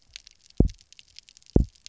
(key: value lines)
label: biophony, double pulse
recorder: SoundTrap 300